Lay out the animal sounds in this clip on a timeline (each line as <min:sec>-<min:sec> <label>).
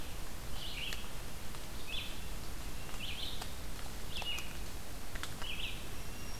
0:00.0-0:06.4 Red-eyed Vireo (Vireo olivaceus)
0:05.6-0:06.4 Black-throated Green Warbler (Setophaga virens)